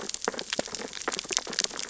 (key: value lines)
label: biophony, sea urchins (Echinidae)
recorder: SoundTrap 600 or HydroMoth